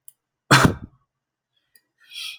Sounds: Sneeze